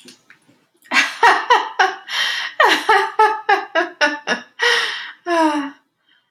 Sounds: Laughter